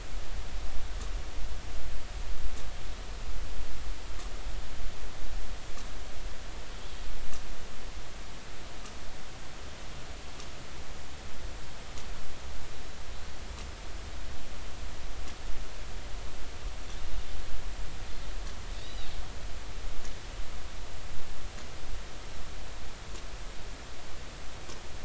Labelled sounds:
18.8	19.1	killer whale, northern resident, A clan, AB subclan, call N20, 3.6 to 5.0 kHz

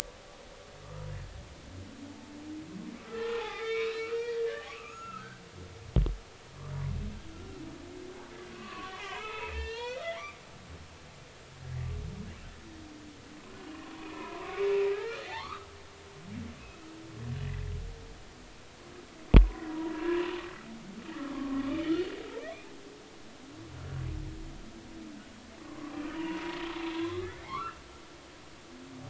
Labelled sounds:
0.8	1.1	humpback whale, 1.1 to 1.4 kHz
3.0	5.4	humpback whale, 0.80 to 4.8 kHz
7.3	7.6	humpback whale, 1.3 to 1.4 kHz
8.5	10.4	humpback whale, 0.83 to 4.5 kHz
14.1	15.7	humpback whale, 0.80 to 2.6 kHz
16.6	16.8	humpback whale, 2.5 to 2.7 kHz
19.4	19.8	humpback whale, 0.93 to 2.0 kHz
21.3	22.0	humpback whale, 1.0 to 3.2 kHz
25.6	26.6	humpback whale, 0.90 to 3.1 kHz
26.9	27.8	humpback whale, 0.93 to 3.6 kHz

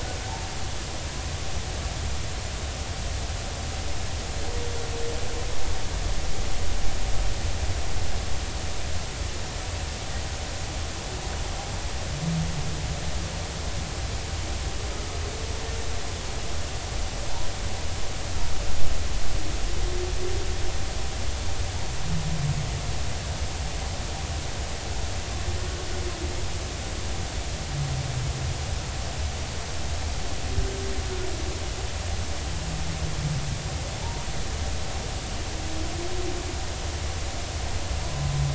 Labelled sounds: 34.0	34.3	humpback whale, 0.83 to 1.0 kHz

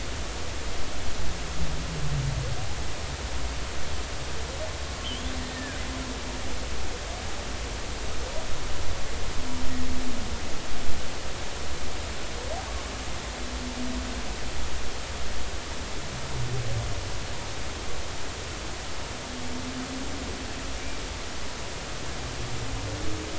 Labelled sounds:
5.0	5.8	killer whale, Bigg's (transient), 1.5 to 3.7 kHz

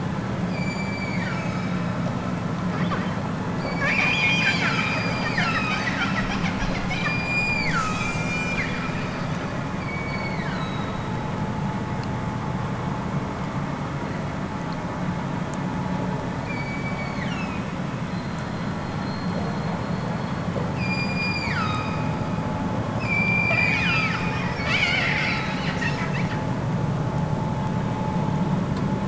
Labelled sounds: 0.4	1.7	killer whale, southern Alaska resident, 0.87 to 8.0 kHz
3.5	6.3	killer whale, southern Alaska resident, 0.78 to 8.0 kHz
6.9	9.2	killer whale, southern Alaska resident, 0.87 to 8.0 kHz
9.7	11.1	killer whale, southern Alaska resident, 1.2 to 8.0 kHz
16.4	17.6	killer whale, southern Alaska resident, 1.2 to 7.2 kHz
20.7	22.1	killer whale, southern Alaska resident, 1.1 to 8.0 kHz
22.9	24.3	killer whale, southern Alaska resident, 0.92 to 7.7 kHz

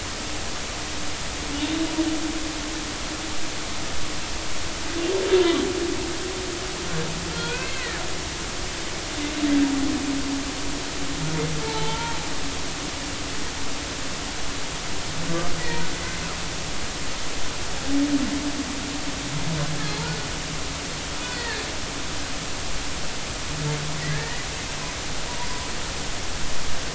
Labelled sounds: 7.3	8.0	humpback whale, 1.3 to 2.7 kHz
11.6	12.2	humpback whale, 0.83 to 3.3 kHz
15.6	15.9	humpback whale, 1.8 to 2.0 kHz
22.3	22.6	humpback whale, 1.6 to 2.0 kHz
24.1	24.4	humpback whale, 1.6 to 2.0 kHz

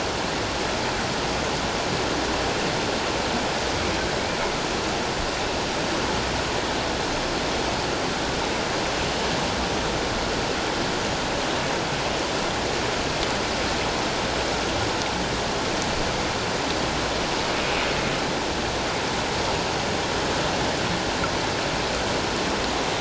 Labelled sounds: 17.6	17.9	humpback whale, 2.4 to 2.5 kHz

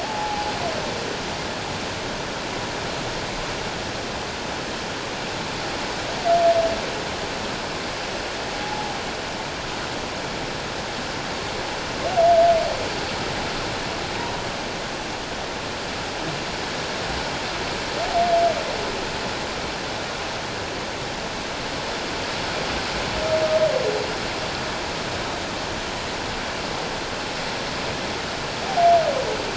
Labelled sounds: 0.0	0.5	humpback whale, 0.78 to 0.91 kHz
8.6	9.0	humpback whale, 0.78 to 0.94 kHz

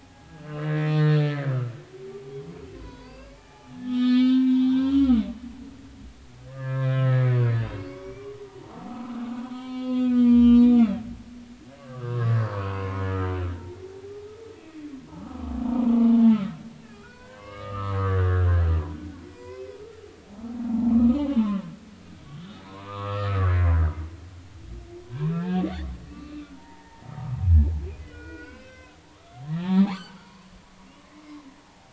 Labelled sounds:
0.0	2.4	humpback whale, 0.80 to 2.2 kHz
2.8	5.9	humpback whale, 0.80 to 5.5 kHz
6.5	8.3	humpback whale, 0.93 to 5.9 kHz
8.6	10.9	humpback whale, 0.80 to 4.7 kHz
11.8	12.9	humpback whale, 1.0 to 4.8 kHz
16.8	18.7	humpback whale, 0.93 to 5.1 kHz
19.3	19.8	humpback whale, 0.93 to 2.6 kHz
20.3	21.6	humpback whale, 0.80 to 3.0 kHz
22.4	23.5	humpback whale, 0.93 to 3.8 kHz
25.2	25.6	humpback whale, 0.86 to 2.7 kHz
26.1	27.4	humpback whale, 0.80 to 2.1 kHz
28.0	30.5	humpback whale, 0.80 to 4.9 kHz
31.6	31.9	humpback whale, 0.80 to 0.93 kHz

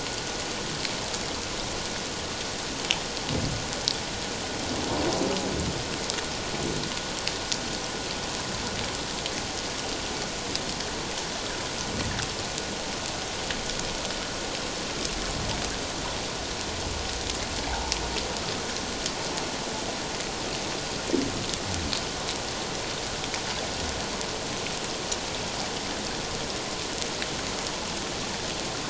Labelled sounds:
17.7	17.9	water noise, 0.78 to 0.97 kHz

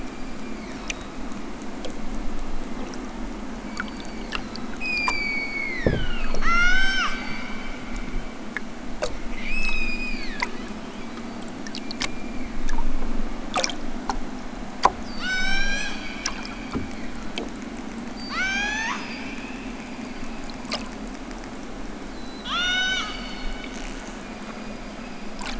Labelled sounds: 0.0	1.3	killer whale, southern Alaska resident, 0.83 to 7.4 kHz
3.7	7.5	killer whale, southern Alaska resident, 0.78 to 8.0 kHz
9.3	10.9	killer whale, southern Alaska resident, 0.83 to 8.0 kHz
11.6	12.9	killer whale, southern Alaska resident, 1.1 to 4.7 kHz
15.0	17.4	killer whale, southern Alaska resident, 0.92 to 8.0 kHz
18.0	20.5	killer whale, southern Alaska resident, 0.46 to 8.0 kHz
22.2	23.5	killer whale, southern Alaska resident, 0.55 to 8.0 kHz
24.2	25.4	killer whale, southern Alaska resident, 2.3 to 5.1 kHz

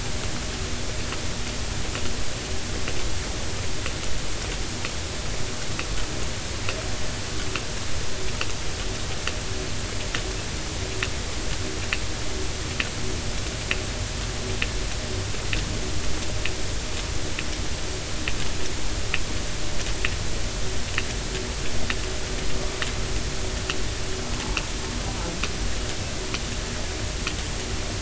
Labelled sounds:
25.1	25.3	humpback whale, 0.83 to 1.0 kHz

